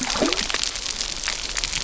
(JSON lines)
{"label": "geophony, waves", "recorder": "SoundTrap 300"}